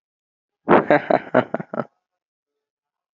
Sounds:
Laughter